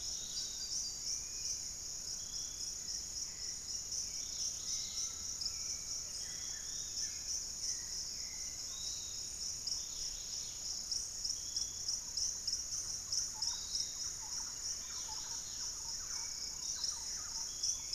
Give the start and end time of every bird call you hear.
[0.00, 1.14] Fasciated Antshrike (Cymbilaimus lineatus)
[0.00, 9.04] Hauxwell's Thrush (Turdus hauxwelli)
[0.00, 17.95] Dusky-capped Greenlet (Pachysylvia hypoxantha)
[0.00, 17.95] Piratic Flycatcher (Legatus leucophaius)
[4.74, 6.44] Undulated Tinamou (Crypturellus undulatus)
[5.84, 7.64] Buff-throated Woodcreeper (Xiphorhynchus guttatus)
[8.74, 10.74] Pygmy Antwren (Myrmotherula brachyura)
[10.14, 11.34] unidentified bird
[11.34, 17.95] Thrush-like Wren (Campylorhynchus turdinus)
[15.84, 17.95] Hauxwell's Thrush (Turdus hauxwelli)

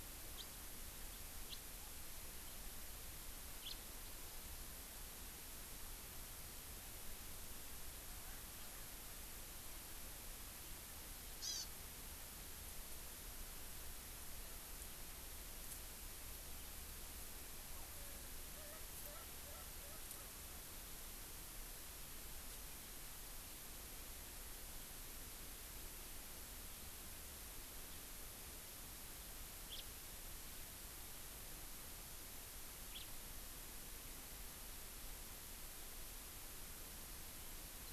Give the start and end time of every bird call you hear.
[0.32, 0.52] House Finch (Haemorhous mexicanus)
[1.52, 1.62] House Finch (Haemorhous mexicanus)
[3.62, 3.72] House Finch (Haemorhous mexicanus)
[11.42, 11.62] Hawaii Amakihi (Chlorodrepanis virens)
[17.72, 20.32] Erckel's Francolin (Pternistis erckelii)
[29.72, 29.82] House Finch (Haemorhous mexicanus)
[32.92, 33.02] House Finch (Haemorhous mexicanus)

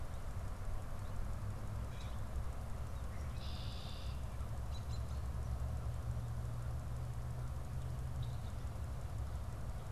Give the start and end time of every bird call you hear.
[1.74, 2.44] Common Grackle (Quiscalus quiscula)
[3.14, 4.34] Red-winged Blackbird (Agelaius phoeniceus)
[4.54, 5.24] American Robin (Turdus migratorius)

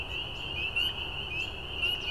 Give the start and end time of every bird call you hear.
[0.00, 1.60] American Robin (Turdus migratorius)

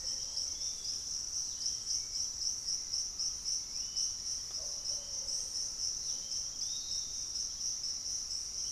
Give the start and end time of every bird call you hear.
[0.00, 1.99] unidentified bird
[0.00, 8.71] Bluish-fronted Jacamar (Galbula cyanescens)
[0.00, 8.71] Piratic Flycatcher (Legatus leucophaius)

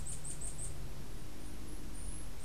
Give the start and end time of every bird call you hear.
[0.00, 2.44] Bananaquit (Coereba flaveola)

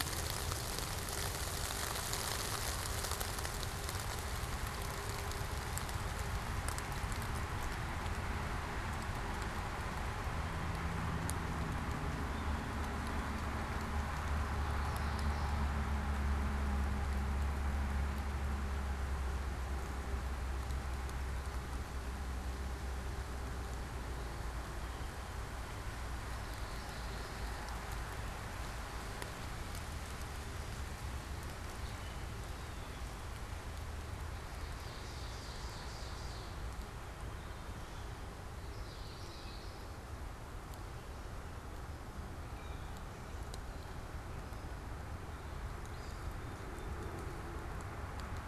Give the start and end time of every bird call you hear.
[14.51, 15.91] Common Yellowthroat (Geothlypis trichas)
[26.21, 27.81] Common Yellowthroat (Geothlypis trichas)
[34.31, 36.61] Ovenbird (Seiurus aurocapilla)
[38.51, 40.01] Common Yellowthroat (Geothlypis trichas)

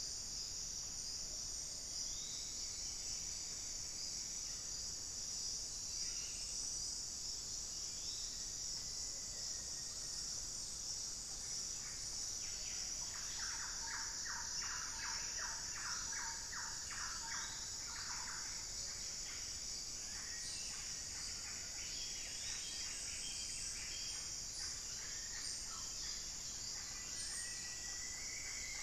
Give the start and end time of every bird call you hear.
[1.82, 2.72] Forest Elaenia (Myiopagis gaimardii)
[1.92, 4.52] unidentified bird
[7.62, 8.52] Forest Elaenia (Myiopagis gaimardii)
[8.02, 10.42] Black-faced Antthrush (Formicarius analis)
[11.42, 13.12] unidentified bird
[12.92, 18.92] Thrush-like Wren (Campylorhynchus turdinus)
[17.22, 18.22] Forest Elaenia (Myiopagis gaimardii)
[18.92, 28.83] Yellow-rumped Cacique (Cacicus cela)
[19.82, 20.62] Black-faced Cotinga (Conioptilon mcilhennyi)
[21.92, 24.52] Thrush-like Wren (Campylorhynchus turdinus)
[25.62, 27.22] Black-faced Cotinga (Conioptilon mcilhennyi)
[26.02, 28.02] unidentified bird
[26.92, 28.83] Rufous-fronted Antthrush (Formicarius rufifrons)

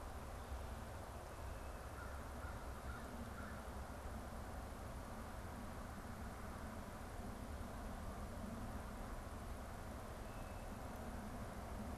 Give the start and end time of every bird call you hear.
[1.88, 3.78] American Crow (Corvus brachyrhynchos)

